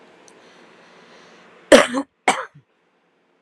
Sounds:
Cough